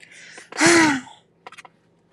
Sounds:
Sigh